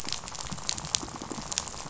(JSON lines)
{"label": "biophony, rattle", "recorder": "SoundTrap 500"}